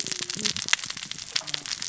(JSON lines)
{"label": "biophony, cascading saw", "recorder": "SoundTrap 600 or HydroMoth"}